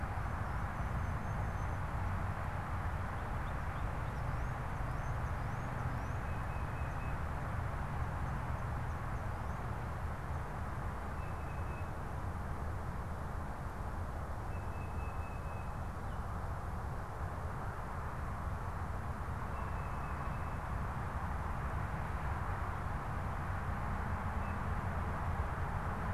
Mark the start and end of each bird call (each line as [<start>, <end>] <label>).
[0.00, 6.50] Ruby-crowned Kinglet (Corthylio calendula)
[5.80, 7.30] Tufted Titmouse (Baeolophus bicolor)
[11.10, 11.90] Tufted Titmouse (Baeolophus bicolor)
[14.40, 16.00] Tufted Titmouse (Baeolophus bicolor)
[19.40, 21.20] Tufted Titmouse (Baeolophus bicolor)
[24.30, 24.60] Tufted Titmouse (Baeolophus bicolor)